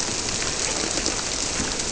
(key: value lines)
label: biophony
recorder: SoundTrap 300